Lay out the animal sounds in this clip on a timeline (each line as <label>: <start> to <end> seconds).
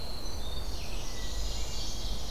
Winter Wren (Troglodytes hiemalis): 0.0 to 1.2 seconds
Red-eyed Vireo (Vireo olivaceus): 0.0 to 2.3 seconds
Ovenbird (Seiurus aurocapilla): 0.5 to 2.3 seconds
Northern Parula (Setophaga americana): 0.7 to 2.2 seconds